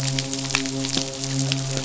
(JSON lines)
{"label": "biophony, midshipman", "recorder": "SoundTrap 500"}